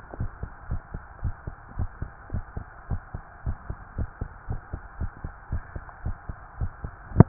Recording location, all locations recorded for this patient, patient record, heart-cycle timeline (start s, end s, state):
tricuspid valve (TV)
aortic valve (AV)+pulmonary valve (PV)+tricuspid valve (TV)+mitral valve (MV)
#Age: Child
#Sex: Male
#Height: 122.0 cm
#Weight: 28.1 kg
#Pregnancy status: False
#Murmur: Absent
#Murmur locations: nan
#Most audible location: nan
#Systolic murmur timing: nan
#Systolic murmur shape: nan
#Systolic murmur grading: nan
#Systolic murmur pitch: nan
#Systolic murmur quality: nan
#Diastolic murmur timing: nan
#Diastolic murmur shape: nan
#Diastolic murmur grading: nan
#Diastolic murmur pitch: nan
#Diastolic murmur quality: nan
#Outcome: Normal
#Campaign: 2015 screening campaign
0.00	0.18	unannotated
0.18	0.32	S1
0.32	0.42	systole
0.42	0.50	S2
0.50	0.68	diastole
0.68	0.82	S1
0.82	0.94	systole
0.94	1.02	S2
1.02	1.24	diastole
1.24	1.36	S1
1.36	1.46	systole
1.46	1.54	S2
1.54	1.76	diastole
1.76	1.90	S1
1.90	2.00	systole
2.00	2.12	S2
2.12	2.32	diastole
2.32	2.46	S1
2.46	2.56	systole
2.56	2.66	S2
2.66	2.90	diastole
2.90	3.02	S1
3.02	3.14	systole
3.14	3.24	S2
3.24	3.46	diastole
3.46	3.58	S1
3.58	3.68	systole
3.68	3.78	S2
3.78	3.96	diastole
3.96	4.10	S1
4.10	4.20	systole
4.20	4.30	S2
4.30	4.48	diastole
4.48	4.60	S1
4.60	4.72	systole
4.72	4.82	S2
4.82	5.00	diastole
5.00	5.12	S1
5.12	5.24	systole
5.24	5.34	S2
5.34	5.52	diastole
5.52	5.64	S1
5.64	5.76	systole
5.76	5.84	S2
5.84	6.06	diastole
6.06	6.18	S1
6.18	6.27	systole
6.27	6.38	S2
6.38	6.58	diastole
6.58	6.72	S1
6.72	6.82	systole
6.82	6.94	S2
6.94	7.28	unannotated